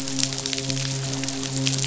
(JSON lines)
{"label": "biophony, midshipman", "recorder": "SoundTrap 500"}